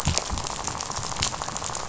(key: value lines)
label: biophony, rattle
recorder: SoundTrap 500